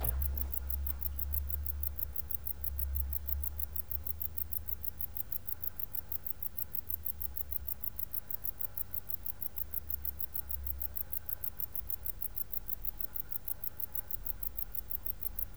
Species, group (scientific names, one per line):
Decticus verrucivorus
Orthoptera